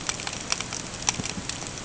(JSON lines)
{"label": "ambient", "recorder": "HydroMoth"}